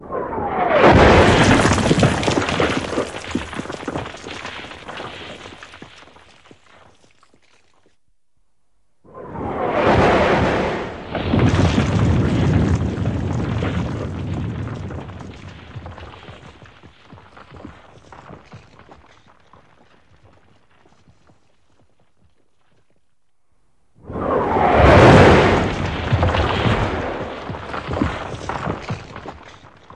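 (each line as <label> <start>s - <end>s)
A clear and loud rocket hits a building nearby. 0.0s - 1.1s
Rubble loudly falls from a nearby building. 1.1s - 6.4s
A loud rocket hitting a building in the distance. 9.1s - 11.0s
Rubble from a building falls continuously and faintly. 11.1s - 22.7s
A clear and loud rocket hits a building nearby. 24.0s - 25.7s
Rubble from a building collapsing faintly. 25.7s - 29.9s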